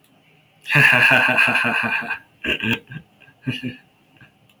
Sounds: Laughter